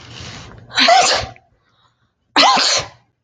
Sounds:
Sneeze